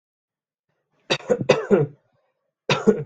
{"expert_labels": [{"quality": "good", "cough_type": "dry", "dyspnea": false, "wheezing": false, "stridor": false, "choking": false, "congestion": false, "nothing": true, "diagnosis": "healthy cough", "severity": "pseudocough/healthy cough"}], "age": 32, "gender": "male", "respiratory_condition": true, "fever_muscle_pain": false, "status": "symptomatic"}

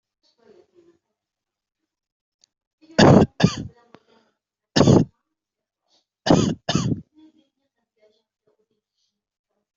{"expert_labels": [{"quality": "ok", "cough_type": "dry", "dyspnea": false, "wheezing": true, "stridor": false, "choking": false, "congestion": false, "nothing": false, "diagnosis": "upper respiratory tract infection", "severity": "mild"}], "age": 21, "gender": "male", "respiratory_condition": true, "fever_muscle_pain": false, "status": "healthy"}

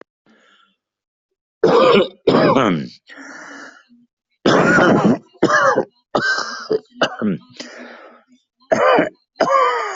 {"expert_labels": [{"quality": "ok", "cough_type": "wet", "dyspnea": true, "wheezing": true, "stridor": false, "choking": true, "congestion": false, "nothing": false, "diagnosis": "lower respiratory tract infection", "severity": "severe"}], "gender": "female", "respiratory_condition": false, "fever_muscle_pain": false, "status": "healthy"}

